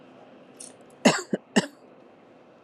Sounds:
Cough